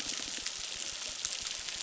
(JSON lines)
{"label": "biophony, crackle", "recorder": "SoundTrap 600"}